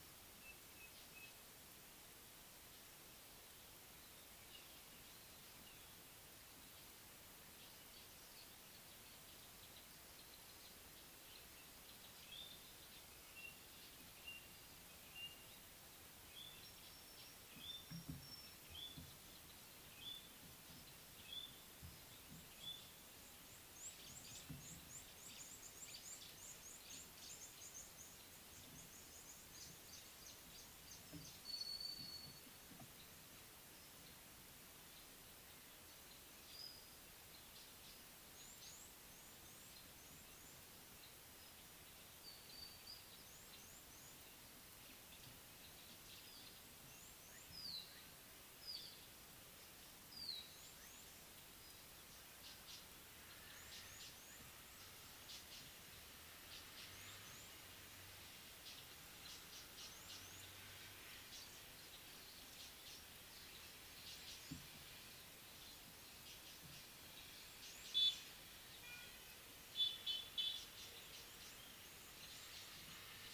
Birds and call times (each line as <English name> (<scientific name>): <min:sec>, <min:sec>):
White-browed Robin-Chat (Cossypha heuglini): 0:18.8
Red-cheeked Cordonbleu (Uraeginthus bengalus): 0:26.1, 0:38.7
Mocking Cliff-Chat (Thamnolaea cinnamomeiventris): 0:48.7, 0:55.4